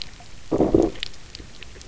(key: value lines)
label: biophony, low growl
recorder: SoundTrap 300